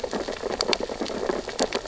{"label": "biophony, sea urchins (Echinidae)", "recorder": "SoundTrap 600 or HydroMoth"}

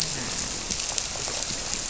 {"label": "biophony, grouper", "recorder": "SoundTrap 300"}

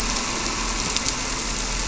{"label": "anthrophony, boat engine", "recorder": "SoundTrap 300"}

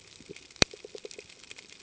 {"label": "ambient", "recorder": "HydroMoth"}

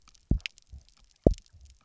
{"label": "biophony, double pulse", "recorder": "SoundTrap 300"}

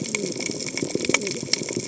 {"label": "biophony, cascading saw", "recorder": "HydroMoth"}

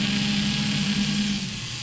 {"label": "anthrophony, boat engine", "recorder": "SoundTrap 500"}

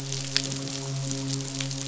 {"label": "biophony, midshipman", "recorder": "SoundTrap 500"}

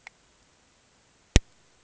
{"label": "ambient", "recorder": "HydroMoth"}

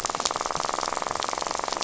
{"label": "biophony, rattle", "recorder": "SoundTrap 500"}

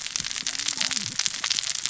{"label": "biophony, cascading saw", "recorder": "SoundTrap 600 or HydroMoth"}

